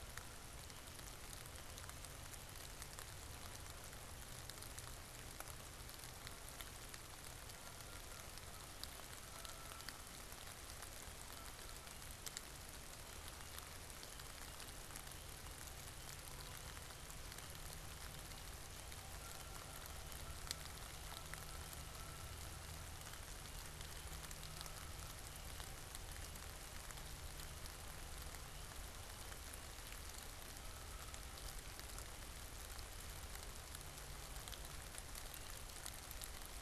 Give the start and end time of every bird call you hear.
[7.42, 12.42] Canada Goose (Branta canadensis)
[19.02, 23.42] Canada Goose (Branta canadensis)
[24.22, 25.42] Canada Goose (Branta canadensis)
[30.42, 32.02] Canada Goose (Branta canadensis)

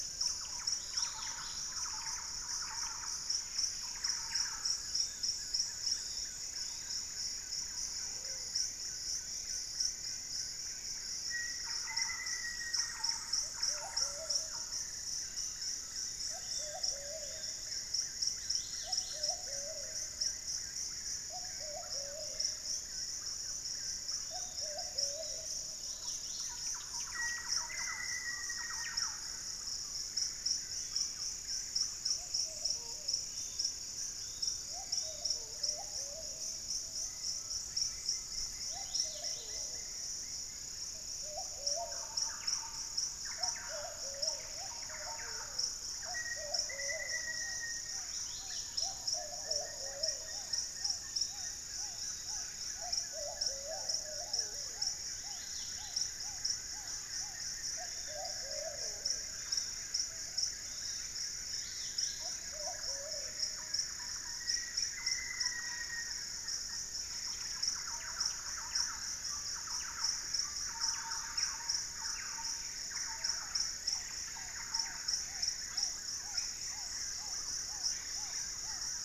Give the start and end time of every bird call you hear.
[0.00, 1.08] Lemon-throated Barbet (Eubucco richardsoni)
[0.00, 32.38] Black-fronted Nunbird (Monasa nigrifrons)
[0.18, 4.88] Thrush-like Wren (Campylorhynchus turdinus)
[0.48, 1.78] Golden-crowned Spadebill (Platyrinchus coronatus)
[0.58, 1.68] Dusky-capped Greenlet (Pachysylvia hypoxantha)
[2.88, 4.18] unidentified bird
[4.68, 7.18] Yellow-margined Flycatcher (Tolmomyias assimilis)
[7.88, 8.68] Plumbeous Pigeon (Patagioenas plumbea)
[9.78, 11.78] unidentified bird
[11.18, 13.28] Black-faced Antthrush (Formicarius analis)
[11.48, 14.88] Thrush-like Wren (Campylorhynchus turdinus)
[13.28, 25.98] Plumbeous Pigeon (Patagioenas plumbea)
[14.28, 17.88] Chestnut-winged Foliage-gleaner (Dendroma erythroptera)
[15.18, 17.88] Yellow-margined Flycatcher (Tolmomyias assimilis)
[15.38, 17.08] Undulated Tinamou (Crypturellus undulatus)
[18.28, 19.48] Dusky-capped Greenlet (Pachysylvia hypoxantha)
[23.08, 24.68] Lemon-throated Barbet (Eubucco richardsoni)
[23.98, 25.38] Yellow-margined Flycatcher (Tolmomyias assimilis)
[25.58, 26.78] Dusky-capped Greenlet (Pachysylvia hypoxantha)
[26.18, 29.48] Thrush-like Wren (Campylorhynchus turdinus)
[26.98, 29.08] Black-faced Antthrush (Formicarius analis)
[28.28, 28.68] Screaming Piha (Lipaugus vociferans)
[30.58, 31.28] unidentified bird
[31.78, 33.98] Pygmy Antwren (Myrmotherula brachyura)
[31.98, 63.48] Plumbeous Pigeon (Patagioenas plumbea)
[32.68, 32.98] unidentified bird
[33.28, 34.78] Collared Trogon (Trogon collaris)
[33.28, 35.58] Yellow-margined Flycatcher (Tolmomyias assimilis)
[36.88, 38.28] Undulated Tinamou (Crypturellus undulatus)
[37.48, 40.68] Wing-barred Piprites (Piprites chloris)
[38.48, 39.68] Dusky-capped Greenlet (Pachysylvia hypoxantha)
[41.58, 46.28] Thrush-like Wren (Campylorhynchus turdinus)
[45.98, 48.18] Black-faced Antthrush (Formicarius analis)
[47.18, 57.68] Black-tailed Trogon (Trogon melanurus)
[47.88, 49.08] Dusky-capped Greenlet (Pachysylvia hypoxantha)
[48.98, 52.48] Wing-barred Piprites (Piprites chloris)
[49.08, 79.05] Black-fronted Nunbird (Monasa nigrifrons)
[49.98, 52.68] Yellow-margined Flycatcher (Tolmomyias assimilis)
[54.98, 56.18] Dusky-capped Greenlet (Pachysylvia hypoxantha)
[56.98, 58.48] Wing-barred Piprites (Piprites chloris)
[57.78, 61.28] Yellow-margined Flycatcher (Tolmomyias assimilis)
[58.08, 60.38] unidentified bird
[61.28, 62.38] Dusky-capped Greenlet (Pachysylvia hypoxantha)
[62.88, 75.08] Thrush-like Wren (Campylorhynchus turdinus)
[64.08, 65.18] unidentified bird
[64.18, 66.28] Black-faced Antthrush (Formicarius analis)
[73.48, 74.88] Golden-crowned Spadebill (Platyrinchus coronatus)
[74.58, 79.05] Black-tailed Trogon (Trogon melanurus)
[76.48, 78.68] unidentified bird

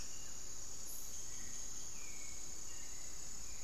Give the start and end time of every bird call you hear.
[0.00, 0.53] Buff-throated Woodcreeper (Xiphorhynchus guttatus)
[0.00, 3.63] Hauxwell's Thrush (Turdus hauxwelli)
[0.00, 3.63] unidentified bird

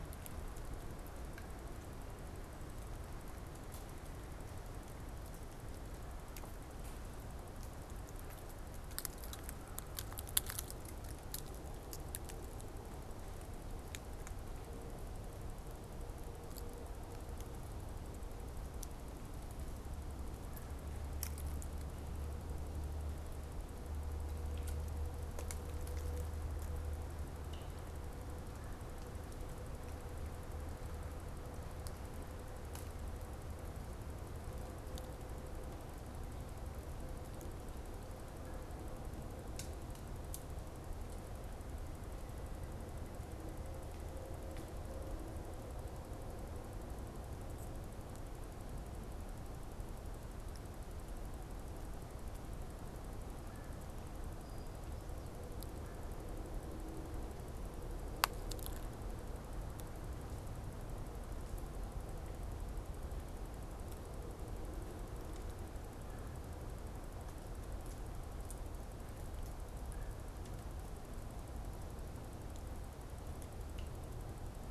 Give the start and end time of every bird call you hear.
[20.23, 20.93] Red-bellied Woodpecker (Melanerpes carolinus)
[28.43, 28.93] Red-bellied Woodpecker (Melanerpes carolinus)
[38.23, 38.73] Red-bellied Woodpecker (Melanerpes carolinus)
[53.33, 53.93] Red-bellied Woodpecker (Melanerpes carolinus)
[54.03, 55.53] unidentified bird
[55.73, 56.23] Red-bellied Woodpecker (Melanerpes carolinus)
[65.93, 66.63] Red-bellied Woodpecker (Melanerpes carolinus)
[69.63, 70.33] Red-bellied Woodpecker (Melanerpes carolinus)

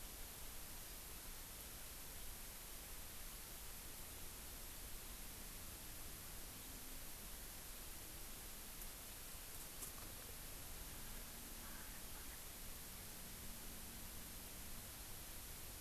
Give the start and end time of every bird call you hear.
[11.63, 12.43] Erckel's Francolin (Pternistis erckelii)

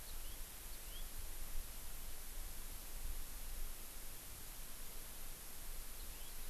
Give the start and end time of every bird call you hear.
[0.00, 0.40] House Finch (Haemorhous mexicanus)
[0.70, 1.00] House Finch (Haemorhous mexicanus)
[6.00, 6.30] House Finch (Haemorhous mexicanus)

